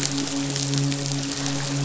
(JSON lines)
{"label": "biophony, midshipman", "recorder": "SoundTrap 500"}